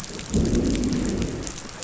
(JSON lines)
{"label": "biophony, growl", "recorder": "SoundTrap 500"}